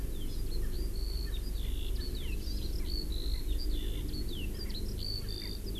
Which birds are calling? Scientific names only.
Alauda arvensis, Chlorodrepanis virens, Pternistis erckelii